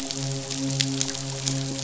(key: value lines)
label: biophony, midshipman
recorder: SoundTrap 500